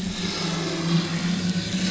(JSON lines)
{"label": "anthrophony, boat engine", "recorder": "SoundTrap 500"}